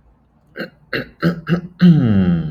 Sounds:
Throat clearing